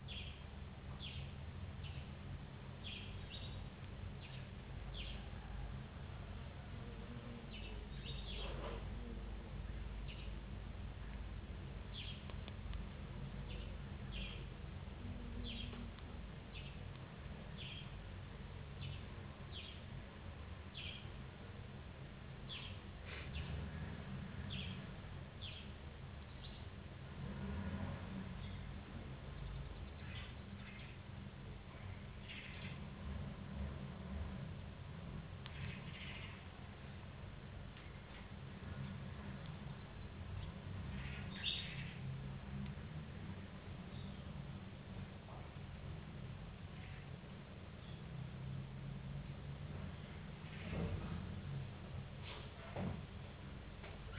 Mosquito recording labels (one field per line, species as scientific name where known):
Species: no mosquito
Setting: insect culture